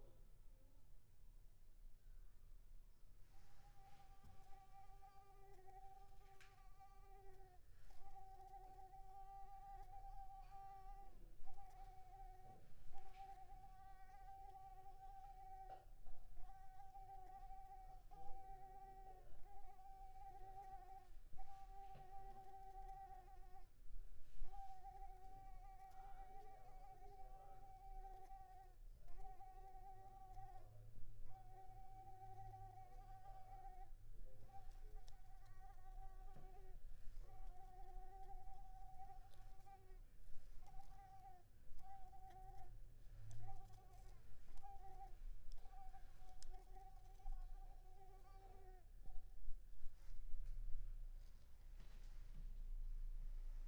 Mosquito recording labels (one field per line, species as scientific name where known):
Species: Mansonia uniformis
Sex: female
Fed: unfed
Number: one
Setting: cup